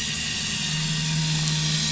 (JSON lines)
{"label": "anthrophony, boat engine", "recorder": "SoundTrap 500"}